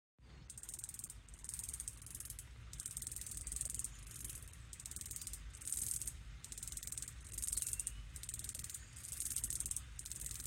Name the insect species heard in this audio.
Platypedia minor